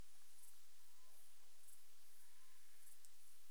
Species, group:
Pholidoptera griseoaptera
Orthoptera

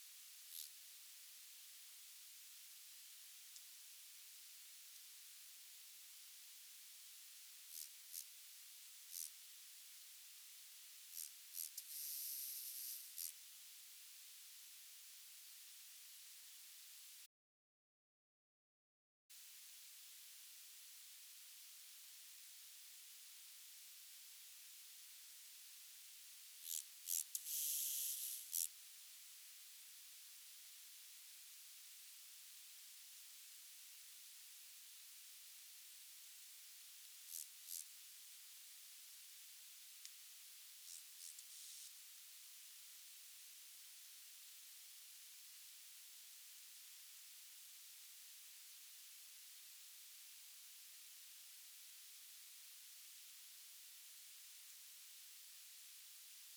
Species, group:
Arcyptera fusca
Orthoptera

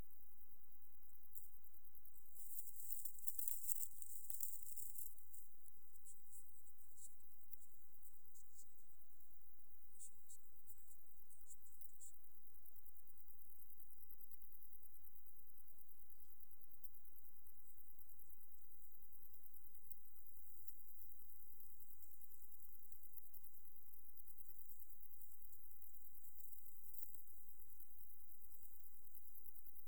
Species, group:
Poecilimon jonicus
Orthoptera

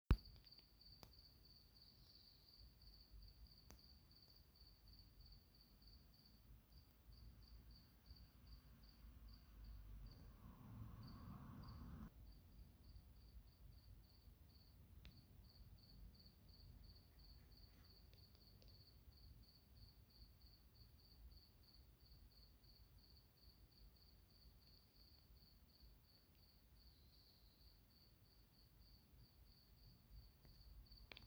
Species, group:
Acheta domesticus
Orthoptera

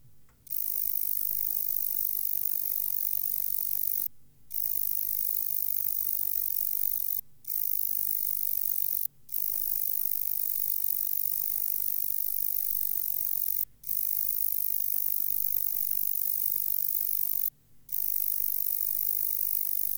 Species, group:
Roeseliana ambitiosa
Orthoptera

